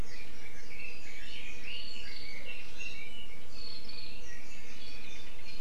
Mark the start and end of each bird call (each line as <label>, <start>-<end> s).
Red-billed Leiothrix (Leiothrix lutea), 0.0-3.5 s